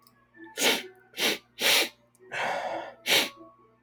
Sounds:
Sniff